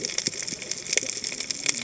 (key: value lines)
label: biophony, cascading saw
recorder: HydroMoth